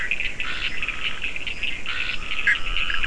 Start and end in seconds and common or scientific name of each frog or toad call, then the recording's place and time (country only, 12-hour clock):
0.0	3.0	Bischoff's tree frog
0.0	3.0	fine-lined tree frog
0.0	3.0	Scinax perereca
0.0	3.0	Cochran's lime tree frog
2.3	3.0	Dendropsophus nahdereri
Brazil, 5:00am